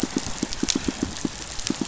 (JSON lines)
{"label": "biophony, pulse", "recorder": "SoundTrap 500"}